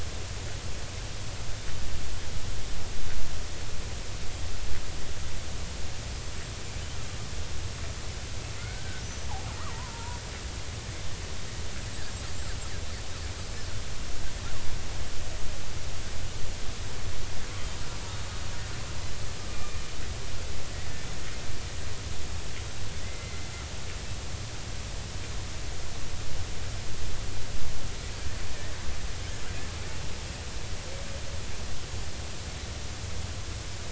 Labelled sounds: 8.6	9.3	killer whale, Bigg's (transient), 1.3 to 6.1 kHz
9.6	10.2	killer whale, Bigg's (transient), 0.86 to 1.4 kHz
17.8	18.0	killer whale, Bigg's (transient), 4.9 to 5.1 kHz
19.5	19.8	killer whale, Bigg's (transient), 2.3 to 2.5 kHz
23.0	23.5	killer whale, Bigg's (transient), 1.9 to 2.1 kHz

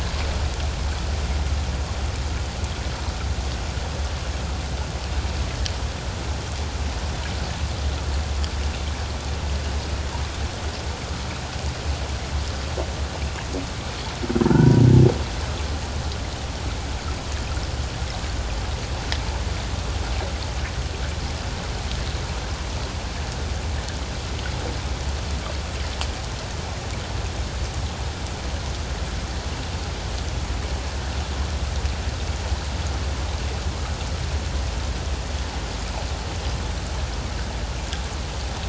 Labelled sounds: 14.4	14.8	humpback whale, 0.84 to 1.6 kHz

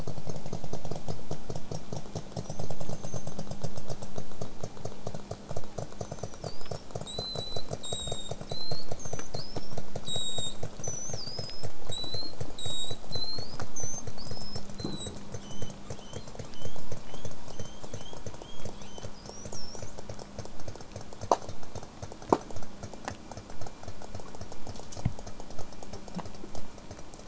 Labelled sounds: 2.4	3.5	killer whale, southern resident, J pod, 5.6 to 6.6 kHz
6.0	15.1	killer whale, southern resident, J pod, 3.4 to 8.0 kHz
15.4	15.7	killer whale, southern resident, J pod, 2.8 to 8.0 kHz
16.0	16.8	killer whale, southern resident, J pod, 2.8 to 8.0 kHz
17.1	19.9	killer whale, southern resident, J pod, 2.9 to 8.0 kHz

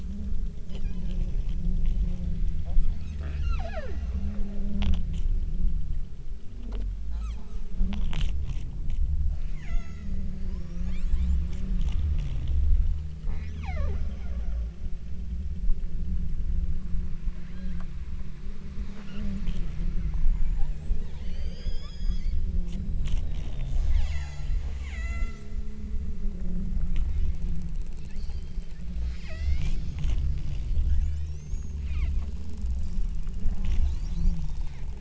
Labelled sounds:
0.9	1.7	killer whale, southern Alaska resident, 1.4 to 7.2 kHz
3.2	4.1	killer whale, southern Alaska resident, 0.25 to 8.0 kHz
7.1	7.5	killer whale, southern Alaska resident, 0.62 to 8.0 kHz
9.3	10.2	killer whale, southern Alaska resident, 0.55 to 7.6 kHz
10.5	11.7	killer whale, southern Alaska resident, 0.79 to 8.0 kHz
13.3	14.6	killer whale, southern Alaska resident, 0.25 to 7.1 kHz
17.5	18.0	killer whale, southern Alaska resident, 0.83 to 4.2 kHz
19.0	19.4	killer whale, southern Alaska resident, 1.2 to 3.1 kHz
21.2	22.5	killer whale, southern Alaska resident, 1.3 to 8.0 kHz
24.0	25.8	killer whale, southern Alaska resident, 0.49 to 8.0 kHz
28.1	29.9	killer whale, southern Alaska resident, 0.49 to 7.5 kHz
30.3	32.3	killer whale, southern Alaska resident, 0.81 to 8.0 kHz

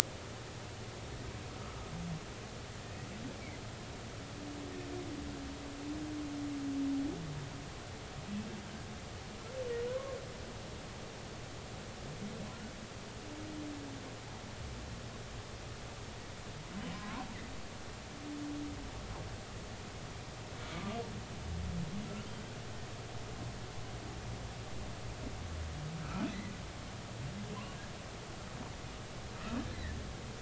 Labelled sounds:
9.9	10.2	humpback whale, 0.96 to 1.1 kHz
16.9	17.2	humpback whale, 0.86 to 1.1 kHz
20.7	21.0	humpback whale, 1.15 to 1.22 kHz
29.7	30.0	humpback whale, 1.7 to 2.2 kHz

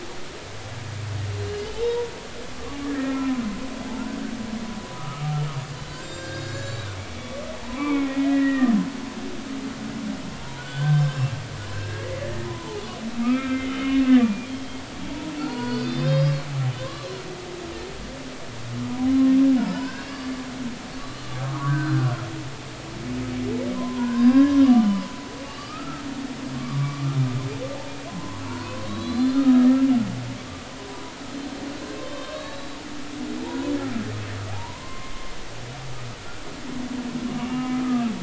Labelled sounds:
1.8	2.1	humpback whale, 0.83 to 1.0 kHz
3.1	3.4	humpback whale, 0.96 to 1.4 kHz
4.9	5.3	humpback whale, 1.1 to 1.4 kHz
5.9	8.8	humpback whale, 0.83 to 7.5 kHz
10.6	12.8	humpback whale, 0.80 to 4.7 kHz
13.2	14.8	humpback whale, 1.2 to 3.3 kHz
15.4	16.4	humpback whale, 0.90 to 5.5 kHz
16.8	17.2	humpback whale, 0.99 to 4.3 kHz
19.7	20.4	humpback whale, 1.1 to 5.1 kHz
21.0	22.1	humpback whale, 0.93 to 4.3 kHz
23.8	25.1	humpback whale, 0.90 to 5.4 kHz
25.4	26.0	humpback whale, 1.1 to 4.9 kHz
26.6	27.2	humpback whale, 1.1 to 1.4 kHz
28.1	29.5	humpback whale, 0.90 to 4.4 kHz
32.0	32.8	humpback whale, 0.99 to 4.5 kHz
33.4	33.7	humpback whale, 0.80 to 1.1 kHz
34.5	35.3	humpback whale, 0.80 to 2.2 kHz
37.5	37.8	humpback whale, 0.99 to 1.1 kHz

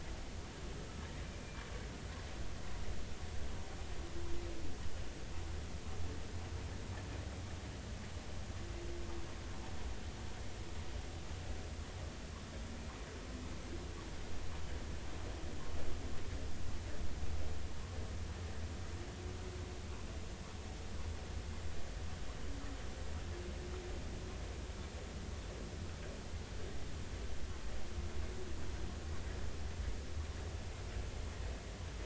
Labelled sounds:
1.2	1.6	humpback whale, 2.3 to 2.5 kHz

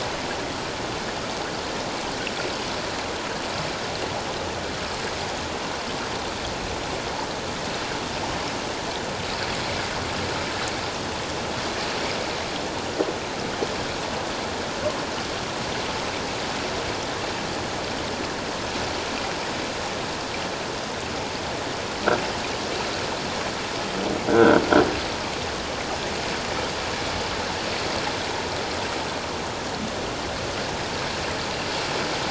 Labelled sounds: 24.3	24.6	croaking sound likely from a nearby submerged object, 1.3 to 1.6 kHz

